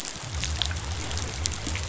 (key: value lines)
label: biophony
recorder: SoundTrap 500